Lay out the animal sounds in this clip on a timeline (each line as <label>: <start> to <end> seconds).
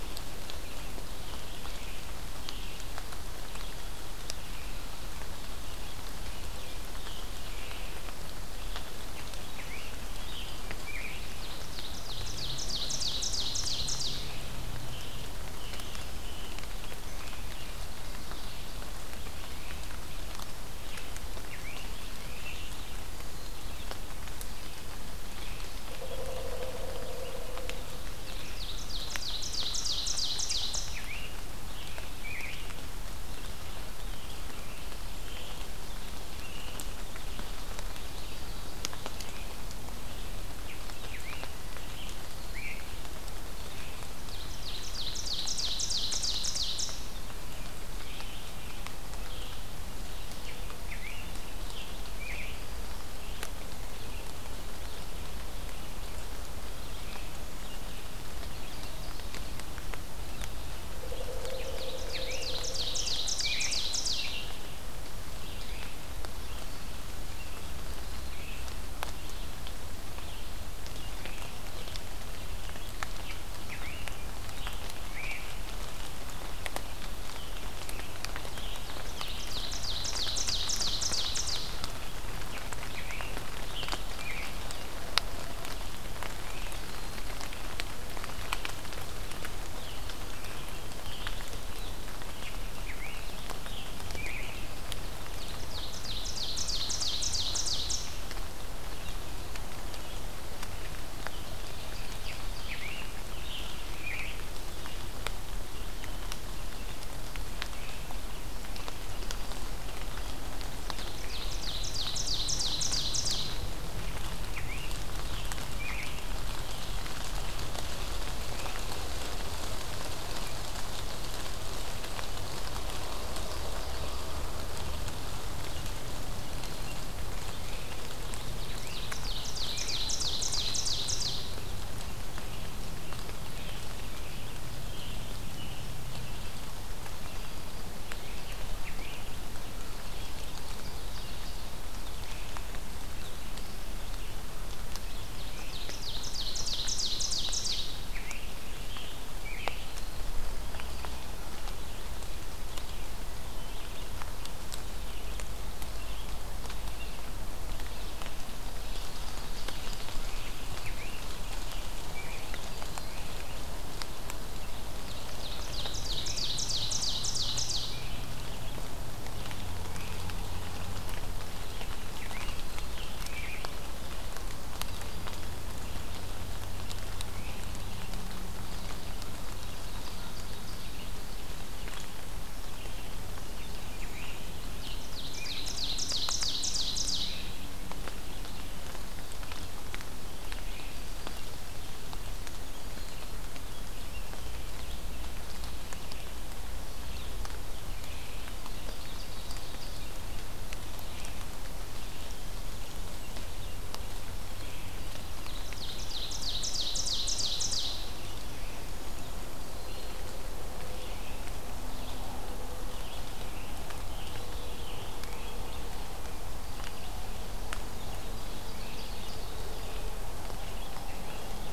Scarlet Tanager (Piranga olivacea): 0.2 to 2.9 seconds
Scarlet Tanager (Piranga olivacea): 6.3 to 7.9 seconds
Scarlet Tanager (Piranga olivacea): 8.7 to 11.4 seconds
Ovenbird (Seiurus aurocapilla): 11.2 to 14.3 seconds
Scarlet Tanager (Piranga olivacea): 14.0 to 16.7 seconds
Scarlet Tanager (Piranga olivacea): 20.6 to 22.8 seconds
Pileated Woodpecker (Dryocopus pileatus): 25.8 to 28.1 seconds
Ovenbird (Seiurus aurocapilla): 27.9 to 31.1 seconds
Scarlet Tanager (Piranga olivacea): 30.1 to 32.7 seconds
Scarlet Tanager (Piranga olivacea): 33.7 to 36.9 seconds
Scarlet Tanager (Piranga olivacea): 40.5 to 43.0 seconds
Ovenbird (Seiurus aurocapilla): 44.1 to 47.0 seconds
Scarlet Tanager (Piranga olivacea): 50.3 to 52.7 seconds
Scarlet Tanager (Piranga olivacea): 61.3 to 64.7 seconds
Ovenbird (Seiurus aurocapilla): 61.5 to 64.6 seconds
Scarlet Tanager (Piranga olivacea): 72.8 to 75.6 seconds
Scarlet Tanager (Piranga olivacea): 76.6 to 79.6 seconds
Ovenbird (Seiurus aurocapilla): 78.8 to 82.0 seconds
Scarlet Tanager (Piranga olivacea): 82.3 to 84.6 seconds
Scarlet Tanager (Piranga olivacea): 89.6 to 94.7 seconds
Ovenbird (Seiurus aurocapilla): 95.2 to 98.2 seconds
Ovenbird (Seiurus aurocapilla): 101.3 to 103.0 seconds
Scarlet Tanager (Piranga olivacea): 102.1 to 104.7 seconds
Ovenbird (Seiurus aurocapilla): 110.8 to 113.8 seconds
Scarlet Tanager (Piranga olivacea): 114.3 to 116.3 seconds
Ovenbird (Seiurus aurocapilla): 128.5 to 131.5 seconds
Scarlet Tanager (Piranga olivacea): 133.3 to 136.0 seconds
Scarlet Tanager (Piranga olivacea): 138.1 to 139.4 seconds
Ovenbird (Seiurus aurocapilla): 145.6 to 148.0 seconds
Scarlet Tanager (Piranga olivacea): 147.8 to 150.0 seconds
Scarlet Tanager (Piranga olivacea): 160.1 to 162.7 seconds
Ovenbird (Seiurus aurocapilla): 164.8 to 168.0 seconds
Scarlet Tanager (Piranga olivacea): 172.0 to 173.8 seconds
Ovenbird (Seiurus aurocapilla): 179.6 to 181.4 seconds
Scarlet Tanager (Piranga olivacea): 183.5 to 185.8 seconds
Ovenbird (Seiurus aurocapilla): 184.3 to 187.5 seconds
Ovenbird (Seiurus aurocapilla): 198.4 to 200.1 seconds
Ovenbird (Seiurus aurocapilla): 205.5 to 208.1 seconds
Scarlet Tanager (Piranga olivacea): 213.1 to 215.6 seconds
Ovenbird (Seiurus aurocapilla): 218.3 to 219.7 seconds